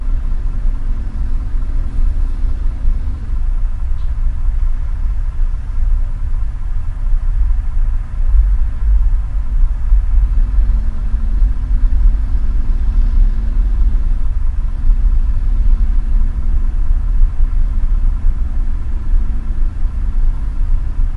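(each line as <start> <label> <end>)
0.0 The steady growl of a distant motor. 21.1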